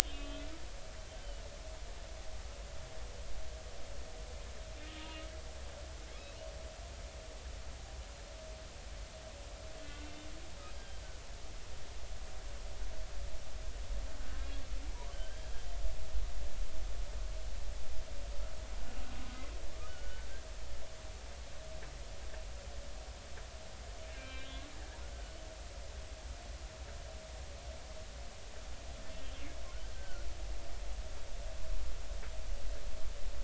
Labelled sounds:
0.1	0.5	humpback whale, 1.1 to 3.5 kHz
4.9	5.3	humpback whale, 1.2 to 1.3 kHz
9.8	10.1	humpback whale, 1.4 to 1.5 kHz
15.1	15.4	humpback whale, 1.5 to 1.7 kHz
19.9	20.3	humpback whale, 1.4 to 1.6 kHz
24.1	24.5	humpback whale, 1.5 to 2.4 kHz
25.1	25.4	humpback whale, 1.4 to 1.6 kHz
29.9	30.3	humpback whale, 1.3 to 1.6 kHz

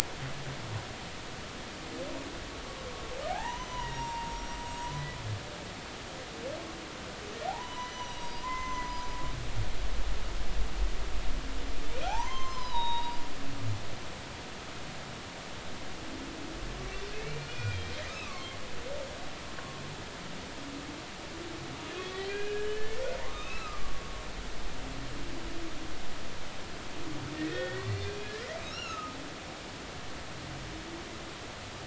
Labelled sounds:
3.3	5.1	humpback whale, 0.80 to 6.1 kHz
7.5	8.9	humpback whale, 0.80 to 6.2 kHz
12.0	13.2	humpback whale, 0.80 to 6.4 kHz
17.2	17.8	humpback whale, 2.1 to 2.5 kHz
18.2	18.6	humpback whale, 1.0 to 2.3 kHz
21.9	23.0	humpback whale, 1.6 to 4.4 kHz
23.3	23.9	humpback whale, 1.1 to 2.7 kHz
27.4	28.3	humpback whale, 1.4 to 4.6 kHz
28.7	29.2	humpback whale, 1.2 to 5.8 kHz

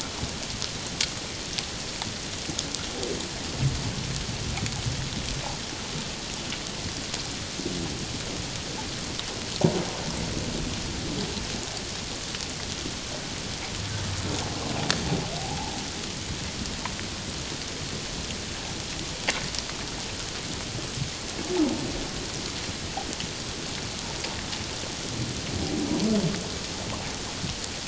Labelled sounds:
15.4	15.7	humpback whale, 0.78 to 0.94 kHz

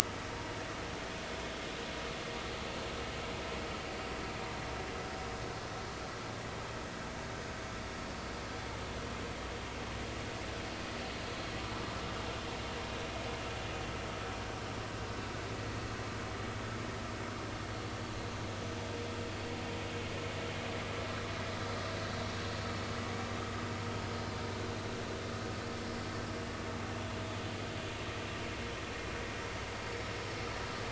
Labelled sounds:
4.9	5.2	vessel noise, 5.0 to 5.2 kHz

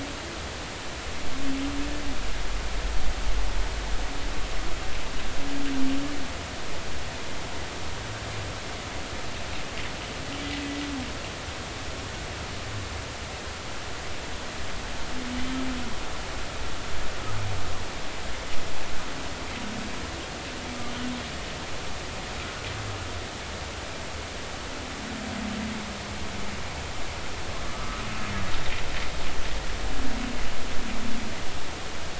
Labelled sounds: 15.3	15.6	humpback whale, 2.9 to 3.1 kHz
27.7	28.0	humpback whale, 1.1 to 1.3 kHz

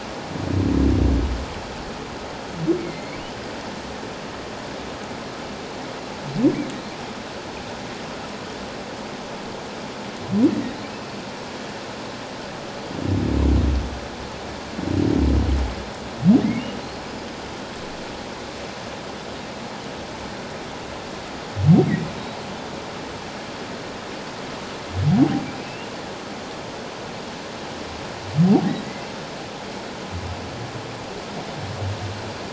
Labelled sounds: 2.8	3.2	humpback whale, 2.0 to 2.3 kHz
16.4	16.7	humpback whale, 1.7 to 2.3 kHz
25.1	25.9	humpback whale, 0.78 to 2.9 kHz

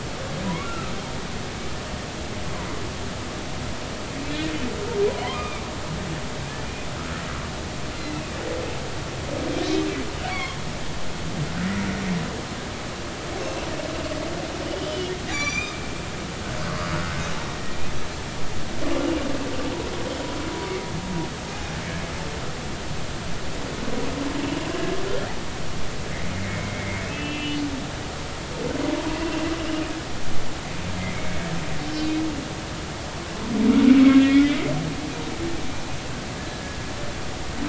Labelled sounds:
0.4	0.9	humpback whale, 0.93 to 1.5 kHz
5.2	5.7	humpback whale, 0.93 to 2.5 kHz
6.9	7.2	humpback whale, 1.2 to 1.5 kHz
10.3	10.6	humpback whale, 0.99 to 3.4 kHz
14.8	15.8	humpback whale, 2.2 to 6.2 kHz
17.3	17.6	humpback whale, 5.6 to 5.7 kHz
21.4	21.7	humpback whale, 0.80 to 0.86 kHz
26.3	27.6	humpback whale, 2.0 to 3.0 kHz
29.1	29.5	humpback whale, 2.7 to 2.9 kHz
31.1	31.4	humpback whale, 2.1 to 2.3 kHz
32.0	32.2	humpback whale, 2.4 to 2.5 kHz
36.5	36.8	humpback whale, 1.6 to 1.8 kHz

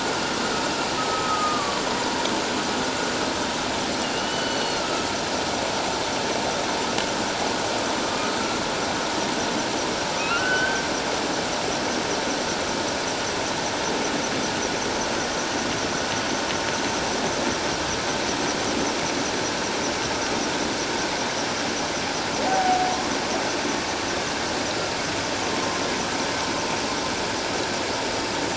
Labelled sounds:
1.1	1.8	humpback whale, 1.1 to 1.4 kHz
4.0	4.8	humpback whale, 2.7 to 4.5 kHz
8.1	8.3	humpback whale, 1.2 to 1.3 kHz
10.2	10.8	humpback whale, 1.1 to 3.1 kHz
22.4	22.9	humpback whale, 0.78 to 0.88 kHz

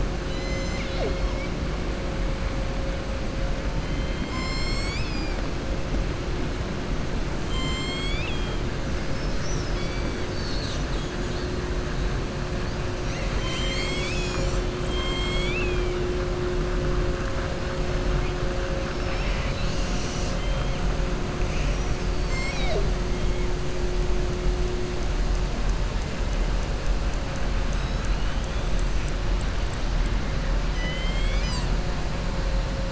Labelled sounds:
3.8	5.4	killer whale, southern resident, 1.1 to 7.8 kHz
7.4	8.6	killer whale, southern resident, 1.1 to 7.7 kHz
14.8	15.9	killer whale, southern resident, 2.1 to 4.6 kHz
30.7	31.7	killer whale, southern resident, 1.9 to 7.9 kHz

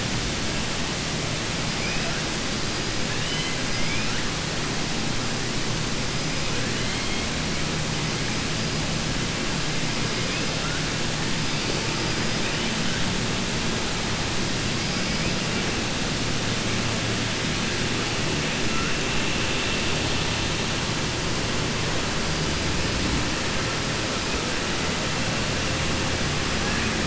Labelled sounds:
3.1	4.2	killer whale, 1.3 to 4.1 kHz

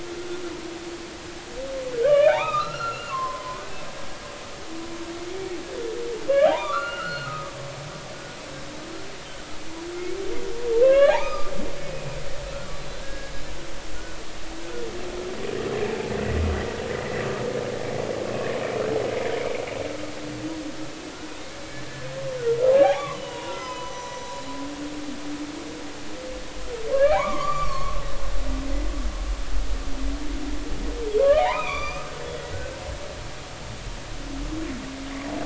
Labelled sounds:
0.1	0.4	humpback whale, 1.3 to 1.5 kHz
1.9	3.6	humpback whale, 0.80 to 4.3 kHz
5.3	5.6	humpback whale, 2.1 to 2.3 kHz
6.3	7.5	humpback whale, 0.80 to 4.4 kHz
10.8	11.5	humpback whale, 0.80 to 3.5 kHz
12.9	13.3	humpback whale, 1.5 to 1.7 kHz
18.3	18.5	humpback whale, 2.5 to 2.7 kHz
19.4	19.6	humpback whale, 2.1 to 2.5 kHz
21.9	24.5	humpback whale, 0.80 to 7.0 kHz
26.9	28.0	humpback whale, 0.80 to 4.7 kHz
31.2	32.8	humpback whale, 0.80 to 6.1 kHz

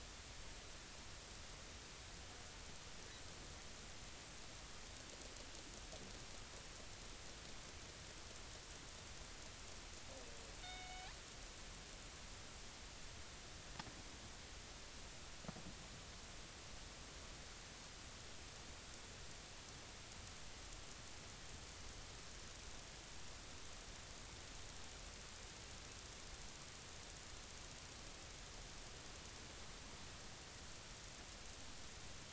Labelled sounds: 10.6	11.2	killer whale, northern resident, G clan, 0.80 to 3.8 kHz

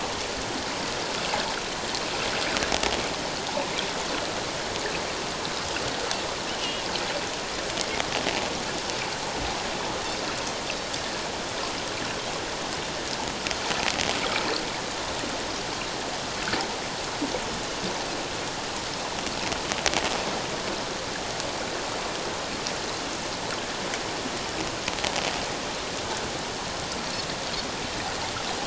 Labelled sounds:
6.6	6.9	Pacific white-sided dolphin, 2.7 to 3.1 kHz

